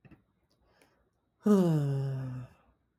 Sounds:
Sigh